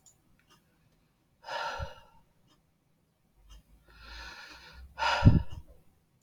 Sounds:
Sigh